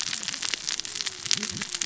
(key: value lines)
label: biophony, cascading saw
recorder: SoundTrap 600 or HydroMoth